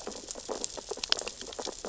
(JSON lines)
{"label": "biophony, sea urchins (Echinidae)", "recorder": "SoundTrap 600 or HydroMoth"}